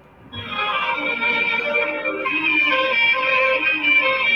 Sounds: Sniff